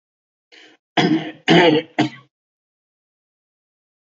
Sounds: Throat clearing